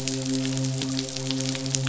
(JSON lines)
{"label": "biophony, midshipman", "recorder": "SoundTrap 500"}